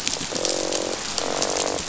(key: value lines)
label: biophony, croak
recorder: SoundTrap 500